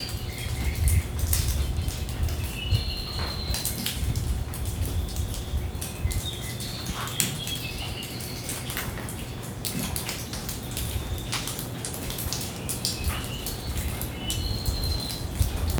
Is this in the forest?
yes